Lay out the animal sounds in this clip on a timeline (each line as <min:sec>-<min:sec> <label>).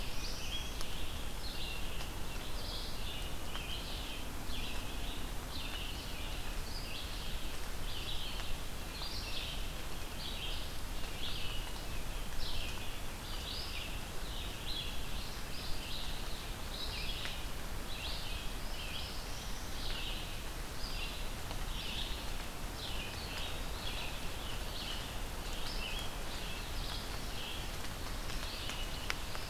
0:00.0-0:00.9 Northern Parula (Setophaga americana)
0:00.0-0:29.5 Red-eyed Vireo (Vireo olivaceus)
0:18.5-0:19.9 Northern Parula (Setophaga americana)